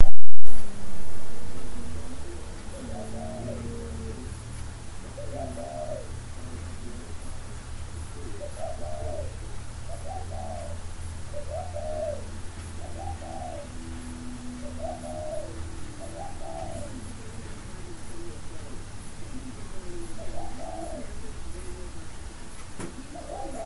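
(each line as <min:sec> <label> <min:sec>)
0:00.0 Quiet background music playing. 0:23.6
0:00.7 Soft, constant white noise. 0:23.6
0:02.7 A night bird softly coos in the distance. 0:03.7
0:05.1 A night bird softly coos in the distance. 0:06.1
0:08.3 Night birds call back and forth in a slow, alternating pattern with soft coos overlapping in the distance. 0:17.3
0:20.0 A night bird softly coos in the distance. 0:21.3
0:23.0 A night bird softly coos in the distance. 0:23.6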